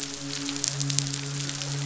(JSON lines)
{"label": "biophony, midshipman", "recorder": "SoundTrap 500"}